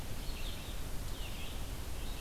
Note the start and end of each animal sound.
0.0s-2.2s: Red-eyed Vireo (Vireo olivaceus)

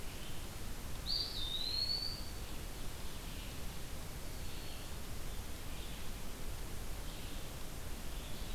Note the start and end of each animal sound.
0.0s-8.5s: Red-eyed Vireo (Vireo olivaceus)
0.8s-2.5s: Eastern Wood-Pewee (Contopus virens)
3.8s-5.4s: Black-throated Green Warbler (Setophaga virens)

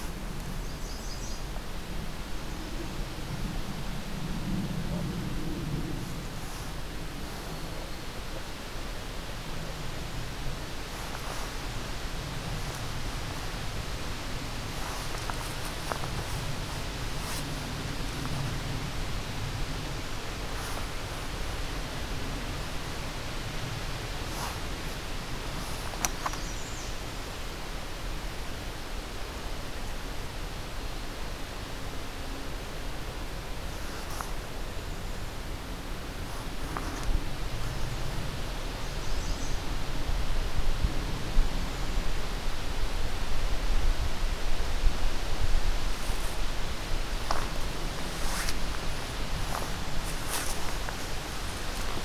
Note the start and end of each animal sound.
0.4s-1.7s: American Redstart (Setophaga ruticilla)
25.5s-27.2s: American Redstart (Setophaga ruticilla)
38.4s-39.9s: American Redstart (Setophaga ruticilla)

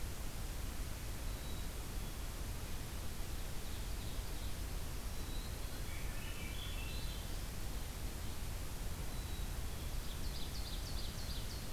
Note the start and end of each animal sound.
1.2s-2.4s: Black-capped Chickadee (Poecile atricapillus)
3.2s-4.6s: Ovenbird (Seiurus aurocapilla)
5.2s-6.2s: Black-capped Chickadee (Poecile atricapillus)
5.8s-7.5s: Swainson's Thrush (Catharus ustulatus)
9.1s-10.1s: Black-capped Chickadee (Poecile atricapillus)
9.9s-11.7s: Ovenbird (Seiurus aurocapilla)

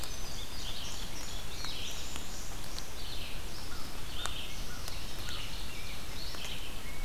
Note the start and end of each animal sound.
0.0s-3.0s: Indigo Bunting (Passerina cyanea)
0.0s-7.0s: Red-eyed Vireo (Vireo olivaceus)
3.5s-5.4s: American Crow (Corvus brachyrhynchos)
4.4s-6.3s: Ovenbird (Seiurus aurocapilla)
4.7s-7.0s: Rose-breasted Grosbeak (Pheucticus ludovicianus)

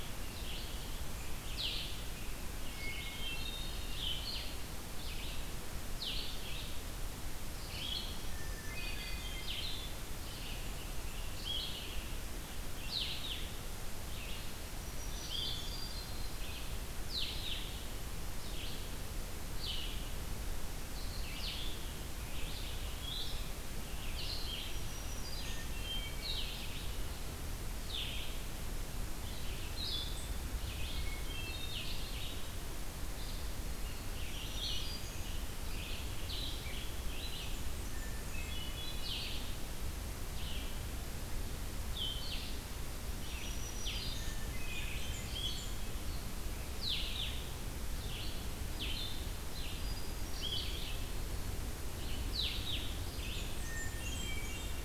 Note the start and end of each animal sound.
0.0s-18.8s: Red-eyed Vireo (Vireo olivaceus)
0.0s-20.0s: Blue-headed Vireo (Vireo solitarius)
2.7s-4.1s: Hermit Thrush (Catharus guttatus)
8.3s-9.7s: Hermit Thrush (Catharus guttatus)
14.7s-15.9s: Black-throated Green Warbler (Setophaga virens)
15.2s-16.4s: Hermit Thrush (Catharus guttatus)
20.7s-54.8s: Red-eyed Vireo (Vireo olivaceus)
21.3s-54.8s: Blue-headed Vireo (Vireo solitarius)
24.5s-25.8s: Black-throated Green Warbler (Setophaga virens)
25.3s-26.6s: Hermit Thrush (Catharus guttatus)
30.8s-32.2s: Hermit Thrush (Catharus guttatus)
34.3s-35.5s: Black-throated Green Warbler (Setophaga virens)
37.3s-38.6s: Blackburnian Warbler (Setophaga fusca)
37.6s-39.4s: Hermit Thrush (Catharus guttatus)
43.0s-44.5s: Black-throated Green Warbler (Setophaga virens)
44.1s-45.7s: Hermit Thrush (Catharus guttatus)
44.3s-45.8s: Blackburnian Warbler (Setophaga fusca)
49.7s-50.7s: Hermit Thrush (Catharus guttatus)
53.1s-54.8s: Blackburnian Warbler (Setophaga fusca)
53.3s-54.8s: Hermit Thrush (Catharus guttatus)

